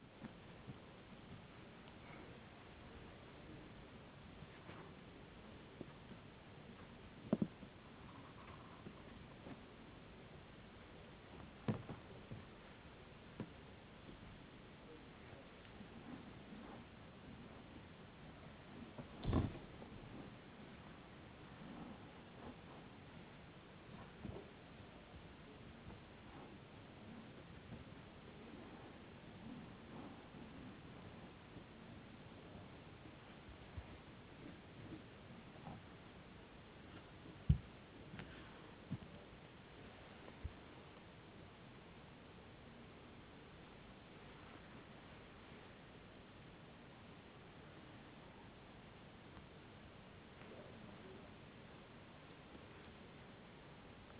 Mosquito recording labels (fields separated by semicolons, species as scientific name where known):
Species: no mosquito; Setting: insect culture